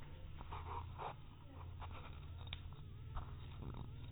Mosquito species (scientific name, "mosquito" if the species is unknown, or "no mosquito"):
mosquito